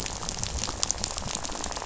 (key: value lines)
label: biophony, rattle
recorder: SoundTrap 500